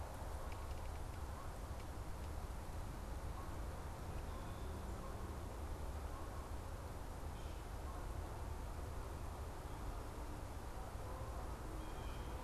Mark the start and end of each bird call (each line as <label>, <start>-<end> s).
Blue Jay (Cyanocitta cristata), 11.7-12.4 s